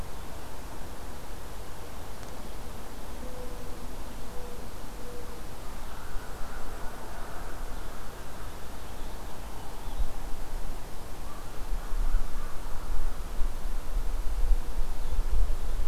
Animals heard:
American Crow (Corvus brachyrhynchos)
Purple Finch (Haemorhous purpureus)

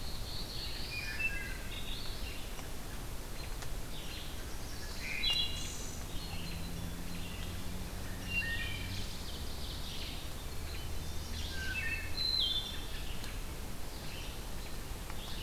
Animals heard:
Red-eyed Vireo (Vireo olivaceus)
Ovenbird (Seiurus aurocapilla)
Black-throated Blue Warbler (Setophaga caerulescens)
Wood Thrush (Hylocichla mustelina)
Chestnut-sided Warbler (Setophaga pensylvanica)

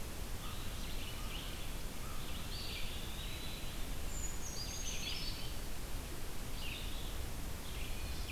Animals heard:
Brown Creeper (Certhia americana)
American Crow (Corvus brachyrhynchos)
Eastern Wood-Pewee (Contopus virens)
Red-eyed Vireo (Vireo olivaceus)

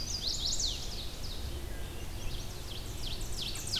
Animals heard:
Chestnut-sided Warbler (Setophaga pensylvanica)
Red-eyed Vireo (Vireo olivaceus)
Ovenbird (Seiurus aurocapilla)

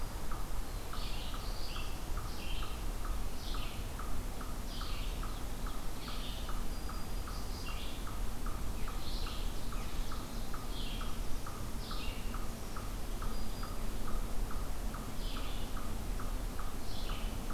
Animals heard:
Black-throated Green Warbler (Setophaga virens)
Eastern Chipmunk (Tamias striatus)
Red-eyed Vireo (Vireo olivaceus)
Black-throated Blue Warbler (Setophaga caerulescens)
Ovenbird (Seiurus aurocapilla)

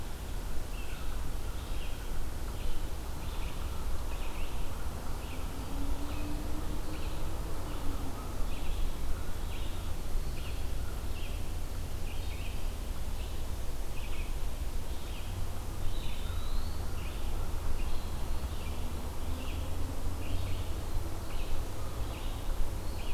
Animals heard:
Red-eyed Vireo (Vireo olivaceus)
Eastern Wood-Pewee (Contopus virens)
American Crow (Corvus brachyrhynchos)

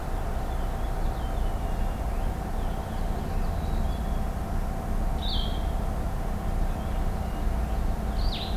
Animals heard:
Blue-headed Vireo (Vireo solitarius)
Black-capped Chickadee (Poecile atricapillus)
Purple Finch (Haemorhous purpureus)

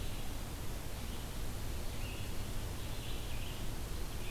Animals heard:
Red-eyed Vireo (Vireo olivaceus)

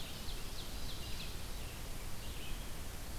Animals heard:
Ovenbird (Seiurus aurocapilla)
Red-eyed Vireo (Vireo olivaceus)

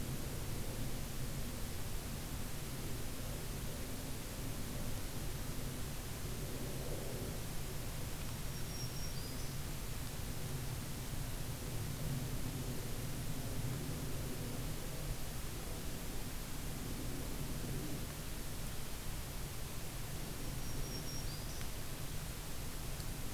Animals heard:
Black-throated Green Warbler (Setophaga virens)

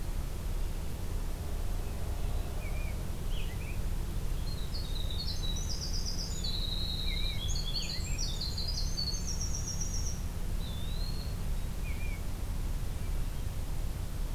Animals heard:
American Robin (Turdus migratorius)
Winter Wren (Troglodytes hiemalis)
Eastern Wood-Pewee (Contopus virens)

